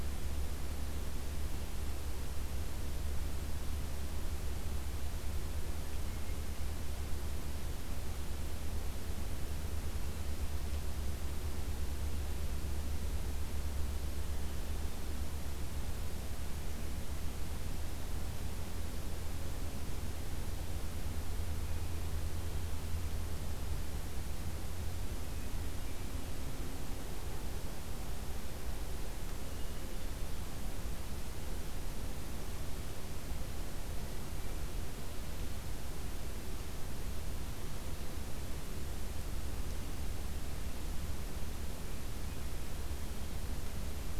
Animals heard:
forest ambience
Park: Hubbard Brook Experimental Forest